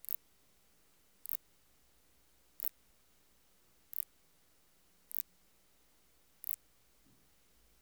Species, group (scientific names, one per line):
Phaneroptera nana
Orthoptera